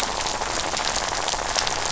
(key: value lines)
label: biophony, rattle
recorder: SoundTrap 500